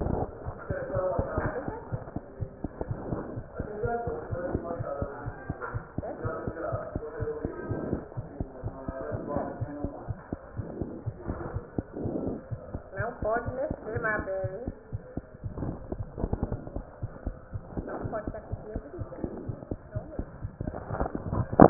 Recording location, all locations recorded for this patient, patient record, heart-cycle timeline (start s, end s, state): aortic valve (AV)
aortic valve (AV)+mitral valve (MV)
#Age: Child
#Sex: Female
#Height: 82.0 cm
#Weight: 11.0 kg
#Pregnancy status: False
#Murmur: Present
#Murmur locations: aortic valve (AV)
#Most audible location: aortic valve (AV)
#Systolic murmur timing: Holosystolic
#Systolic murmur shape: Plateau
#Systolic murmur grading: I/VI
#Systolic murmur pitch: Low
#Systolic murmur quality: Blowing
#Diastolic murmur timing: nan
#Diastolic murmur shape: nan
#Diastolic murmur grading: nan
#Diastolic murmur pitch: nan
#Diastolic murmur quality: nan
#Outcome: Abnormal
#Campaign: 2015 screening campaign
0.00	1.90	unannotated
1.90	1.99	S1
1.99	2.15	systole
2.15	2.21	S2
2.21	2.40	diastole
2.40	2.47	S1
2.47	2.63	systole
2.63	2.69	S2
2.69	2.90	diastole
2.90	2.96	S1
2.96	3.10	systole
3.10	3.16	S2
3.16	3.36	diastole
3.36	3.43	S1
3.43	3.58	systole
3.58	3.66	S2
3.66	3.83	diastole
3.83	3.88	S1
3.88	4.05	systole
4.05	4.12	S2
4.12	4.32	diastole
4.32	4.42	S1
4.42	4.52	systole
4.52	4.62	S2
4.62	4.77	diastole
4.77	4.86	S1
4.86	5.01	systole
5.01	5.06	S2
5.06	5.26	diastole
5.26	5.32	S1
5.32	5.48	systole
5.48	5.54	S2
5.54	5.74	diastole
5.74	5.82	S1
5.82	5.98	systole
5.98	6.03	S2
6.03	6.24	diastole
6.24	6.32	S1
6.32	6.46	systole
6.46	6.52	S2
6.52	6.72	diastole
6.72	6.80	S1
6.80	6.96	systole
6.96	7.01	S2
7.01	7.20	diastole
7.20	7.32	S1
7.32	7.44	systole
7.44	7.52	S2
7.52	7.70	diastole
7.70	7.77	S1
7.77	7.92	systole
7.92	7.97	S2
7.97	8.16	diastole
8.16	8.23	S1
8.23	8.38	systole
8.38	8.46	S2
8.46	8.64	diastole
8.64	8.71	S1
8.71	8.87	systole
8.87	8.94	S2
8.94	9.12	diastole
9.12	9.19	S1
9.19	9.35	systole
9.35	9.40	S2
9.40	9.60	diastole
9.60	9.68	S1
9.68	9.83	systole
9.83	9.89	S2
9.89	10.09	diastole
10.09	10.15	S1
10.15	10.30	systole
10.30	10.36	S2
10.36	10.56	diastole
10.56	10.65	S1
10.65	10.80	systole
10.80	10.88	S2
10.88	11.06	diastole
11.06	11.13	S1
11.13	11.28	systole
11.28	11.35	S2
11.35	11.54	diastole
11.54	11.62	S1
11.62	21.70	unannotated